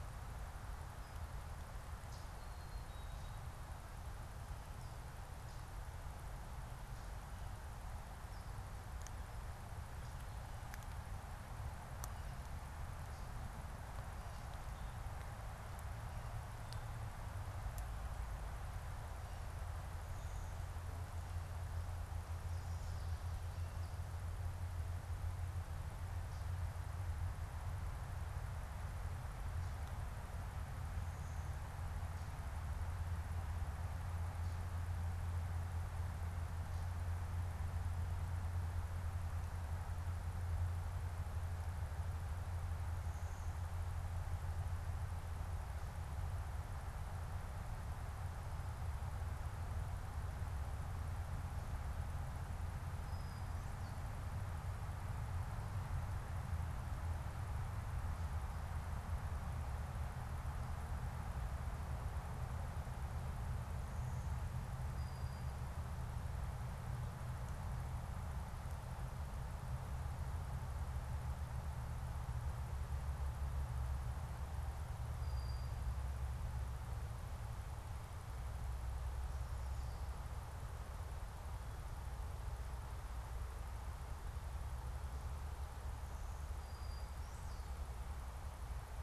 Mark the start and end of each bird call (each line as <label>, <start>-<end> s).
Black-capped Chickadee (Poecile atricapillus), 2.4-3.5 s
Brown-headed Cowbird (Molothrus ater), 53.0-54.3 s
Brown-headed Cowbird (Molothrus ater), 64.7-65.7 s
Brown-headed Cowbird (Molothrus ater), 74.9-76.0 s
Ovenbird (Seiurus aurocapilla), 79.2-80.5 s
Brown-headed Cowbird (Molothrus ater), 86.5-88.0 s